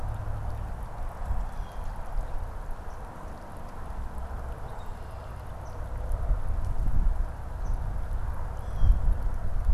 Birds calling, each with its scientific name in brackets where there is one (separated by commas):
Blue Jay (Cyanocitta cristata), Swamp Sparrow (Melospiza georgiana), Red-winged Blackbird (Agelaius phoeniceus)